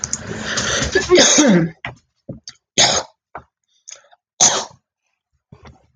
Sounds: Throat clearing